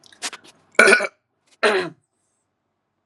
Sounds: Throat clearing